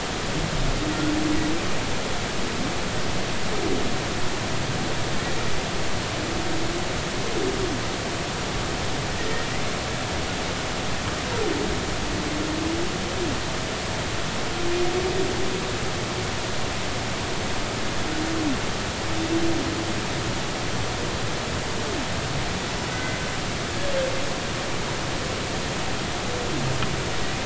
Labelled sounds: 22.9	23.2	humpback whale, 1.5 to 2.1 kHz

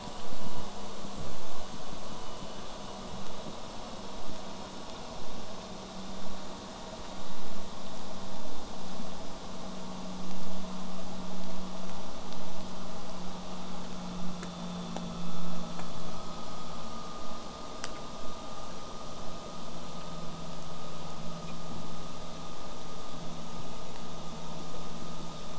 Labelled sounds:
17.2	22.2	vessel noise, 0 to 8.0 kHz

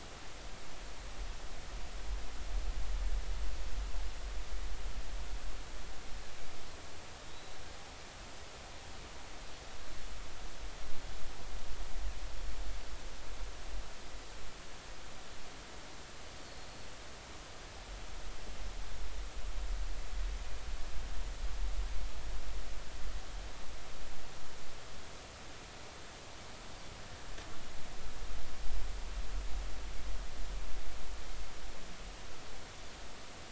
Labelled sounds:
7.2	7.6	Pacific white-sided dolphin, 3.6 to 4.0 kHz

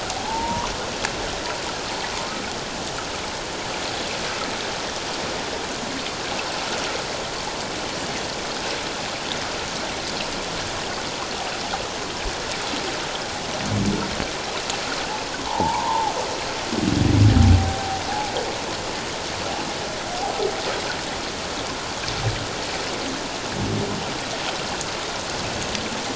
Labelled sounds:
0.3	0.7	humpback whale, 0.81 to 1.2 kHz
15.5	16.1	humpback whale, 0.78 to 1.1 kHz

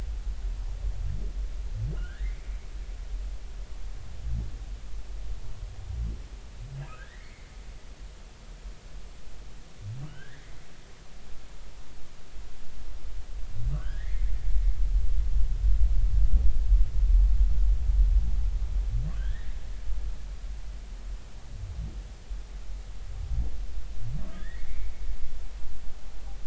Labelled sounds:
1.9	2.5	humpback whale, 1.2 to 2.4 kHz
6.9	7.5	humpback whale, 1.2 to 2.4 kHz
10.1	10.5	humpback whale, 1.4 to 2.2 kHz
13.7	14.3	humpback whale, 1.1 to 3.5 kHz
19.1	19.5	humpback whale, 1.4 to 3.4 kHz
24.3	24.9	humpback whale, 1.5 to 2.5 kHz

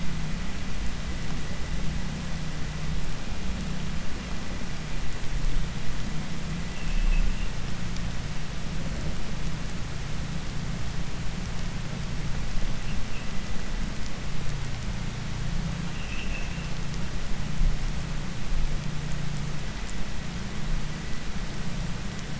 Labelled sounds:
6.7	7.5	vessel noise, 2.0 to 3.3 kHz
15.9	16.7	vessel noise, 2.0 to 3.4 kHz

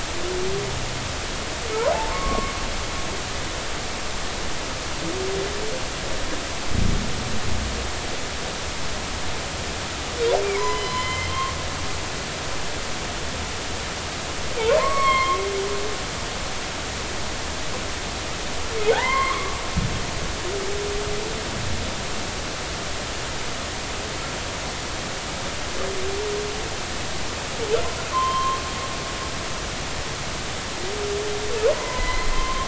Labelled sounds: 1.9	2.5	humpback whale, 0.80 to 1.2 kHz
10.4	11.6	humpback whale, 0.93 to 4.2 kHz
14.7	15.4	humpback whale, 0.90 to 4.4 kHz
18.9	19.6	humpback whale, 0.80 to 2.2 kHz
28.1	28.6	humpback whale, 0.96 to 3.2 kHz
31.7	32.6	humpback whale, 0.93 to 4.2 kHz

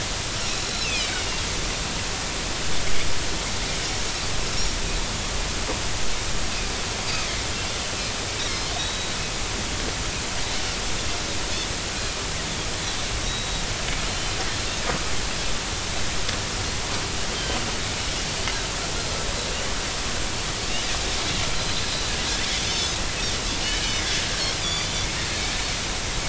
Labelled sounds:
0.8	1.3	Pacific white-sided dolphin, 2.2 to 4.2 kHz
8.5	9.1	Pacific white-sided dolphin, 3.6 to 4.4 kHz
13.2	13.6	Pacific white-sided dolphin, 3.7 to 3.9 kHz
17.3	17.6	Pacific white-sided dolphin, 3.0 to 3.3 kHz
22.7	23.0	Pacific white-sided dolphin, 5.0 to 5.5 kHz
24.6	24.9	Pacific white-sided dolphin, 3.4 to 6.0 kHz

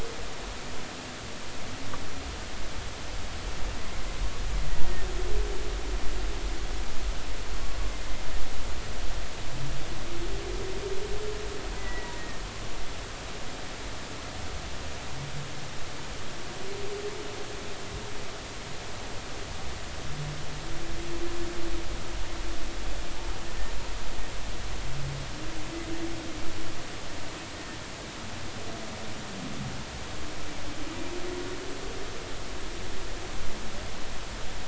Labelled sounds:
4.7	5.1	humpback whale, 1.8 to 2.0 kHz
11.8	12.5	humpback whale, 1.8 to 2.0 kHz

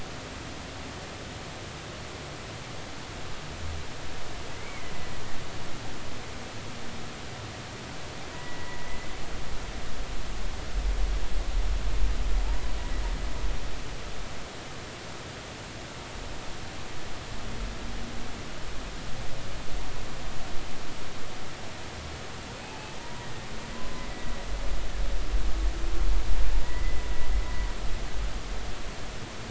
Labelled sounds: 4.6	4.9	humpback whale, 2.0 to 2.3 kHz
8.3	9.1	humpback whale, 1.9 to 2.0 kHz
22.6	24.1	humpback whale, 0.80 to 1.1 kHz
27.6	28.0	humpback whale, 1.8 to 2.1 kHz

